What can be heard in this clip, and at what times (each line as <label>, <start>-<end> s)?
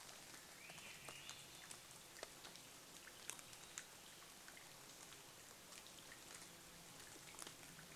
Swainson's Thrush song, 0-4 s
rain, 0-8 s
insect buzz, 6-8 s